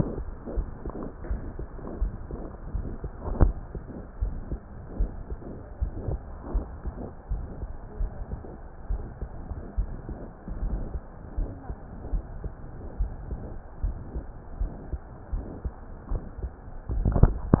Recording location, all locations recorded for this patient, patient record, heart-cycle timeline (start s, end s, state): aortic valve (AV)
aortic valve (AV)+pulmonary valve (PV)+tricuspid valve (TV)+mitral valve (MV)
#Age: Child
#Sex: Female
#Height: 140.0 cm
#Weight: 41.8 kg
#Pregnancy status: False
#Murmur: Absent
#Murmur locations: nan
#Most audible location: nan
#Systolic murmur timing: nan
#Systolic murmur shape: nan
#Systolic murmur grading: nan
#Systolic murmur pitch: nan
#Systolic murmur quality: nan
#Diastolic murmur timing: nan
#Diastolic murmur shape: nan
#Diastolic murmur grading: nan
#Diastolic murmur pitch: nan
#Diastolic murmur quality: nan
#Outcome: Abnormal
#Campaign: 2015 screening campaign
0.00	0.27	unannotated
0.27	0.54	diastole
0.54	0.68	S1
0.68	0.82	systole
0.82	0.94	S2
0.94	1.28	diastole
1.28	1.42	S1
1.42	1.58	systole
1.58	1.68	S2
1.68	1.98	diastole
1.98	2.14	S1
2.14	2.30	systole
2.30	2.40	S2
2.40	2.72	diastole
2.72	2.86	S1
2.86	3.02	systole
3.02	3.12	S2
3.12	3.44	diastole
3.44	3.58	S1
3.58	3.74	systole
3.74	3.84	S2
3.84	4.18	diastole
4.18	4.34	S1
4.34	4.50	systole
4.50	4.60	S2
4.60	4.98	diastole
4.98	5.12	S1
5.12	5.30	systole
5.30	5.40	S2
5.40	5.80	diastole
5.80	5.94	S1
5.94	6.06	systole
6.06	6.20	S2
6.20	6.52	diastole
6.52	6.68	S1
6.68	6.84	systole
6.84	6.94	S2
6.94	7.30	diastole
7.30	7.44	S1
7.44	7.60	systole
7.60	7.68	S2
7.68	7.98	diastole
7.98	8.12	S1
8.12	8.30	systole
8.30	8.44	S2
8.44	8.88	diastole
8.88	9.04	S1
9.04	9.18	systole
9.18	9.30	S2
9.30	9.76	diastole
9.76	9.90	S1
9.90	10.08	systole
10.08	10.18	S2
10.18	10.60	diastole
10.60	10.78	S1
10.78	10.92	systole
10.92	11.02	S2
11.02	11.36	diastole
11.36	11.50	S1
11.50	11.68	systole
11.68	11.76	S2
11.76	12.10	diastole
12.10	12.26	S1
12.26	12.42	systole
12.42	12.54	S2
12.54	12.98	diastole
12.98	13.12	S1
13.12	13.30	systole
13.30	13.40	S2
13.40	13.82	diastole
13.82	13.96	S1
13.96	14.12	systole
14.12	14.24	S2
14.24	14.58	diastole
14.58	14.70	S1
14.70	14.90	systole
14.90	15.00	S2
15.00	15.32	diastole
15.32	15.46	S1
15.46	15.64	systole
15.64	15.74	S2
15.74	16.12	diastole
16.12	16.24	S1
16.24	16.42	systole
16.42	16.52	S2
16.52	16.85	diastole
16.85	17.60	unannotated